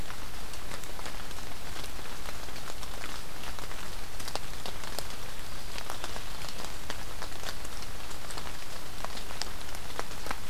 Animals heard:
forest ambience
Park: Marsh-Billings-Rockefeller National Historical Park